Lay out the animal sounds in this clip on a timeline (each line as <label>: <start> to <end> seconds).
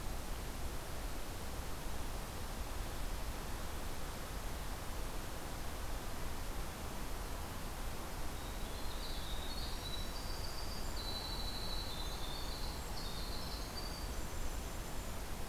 Winter Wren (Troglodytes hiemalis): 8.3 to 15.2 seconds